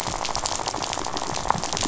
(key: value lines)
label: biophony, rattle
recorder: SoundTrap 500